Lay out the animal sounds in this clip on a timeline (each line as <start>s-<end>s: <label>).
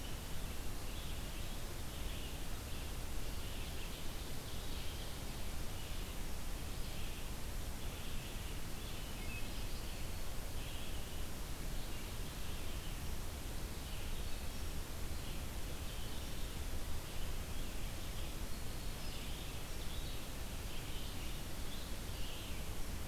0.0s-23.1s: Red-eyed Vireo (Vireo olivaceus)
3.5s-5.4s: Ovenbird (Seiurus aurocapilla)
8.9s-9.6s: Wood Thrush (Hylocichla mustelina)